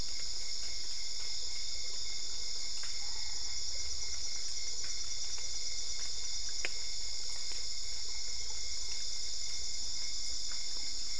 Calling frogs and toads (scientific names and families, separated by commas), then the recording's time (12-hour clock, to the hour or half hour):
none
10pm